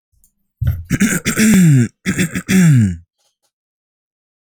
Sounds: Throat clearing